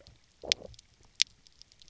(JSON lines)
{"label": "biophony, low growl", "recorder": "SoundTrap 300"}